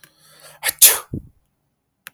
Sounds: Sneeze